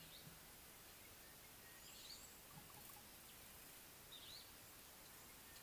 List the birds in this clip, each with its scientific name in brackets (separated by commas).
Slate-colored Boubou (Laniarius funebris), Sulphur-breasted Bushshrike (Telophorus sulfureopectus)